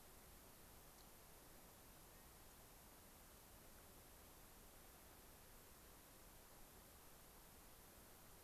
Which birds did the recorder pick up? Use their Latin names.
unidentified bird